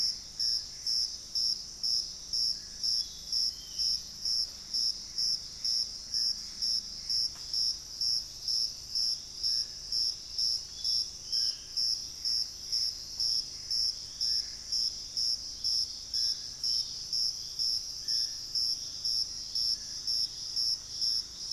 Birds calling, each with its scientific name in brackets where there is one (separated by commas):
Gray Antbird (Cercomacra cinerascens), Black-faced Antthrush (Formicarius analis), Thrush-like Wren (Campylorhynchus turdinus), Ringed Antpipit (Corythopis torquatus), Dusky-throated Antshrike (Thamnomanes ardesiacus)